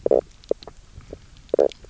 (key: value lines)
label: biophony, knock croak
recorder: SoundTrap 300